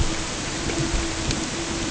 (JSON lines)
{"label": "ambient", "recorder": "HydroMoth"}